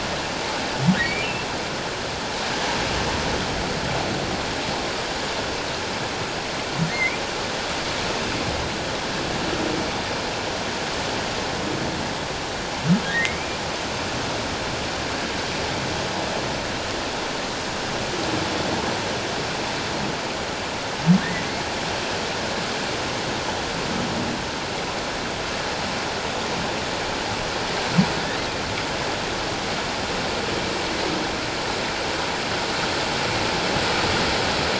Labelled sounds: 1.0	1.3	humpback whale, 2.2 to 2.4 kHz
6.9	7.2	humpback whale, 2.0 to 2.5 kHz
13.0	13.6	humpback whale, 1.6 to 2.5 kHz

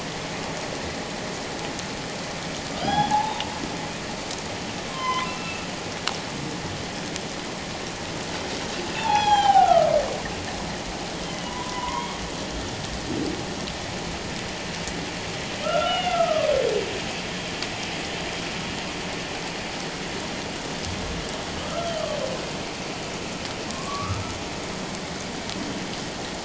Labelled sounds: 2.8	3.4	humpback whale, 0.78 to 5.1 kHz
4.9	5.7	humpback whale, 0.97 to 3.3 kHz
9.0	9.9	humpback whale, 0.78 to 5.9 kHz
11.1	12.2	humpback whale, 0.91 to 3.4 kHz
15.6	16.5	humpback whale, 1.1 to 3.0 kHz
21.7	22.0	humpback whale, 1.2 to 1.4 kHz
23.7	24.2	humpback whale, 1.0 to 1.3 kHz

